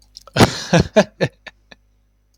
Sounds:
Laughter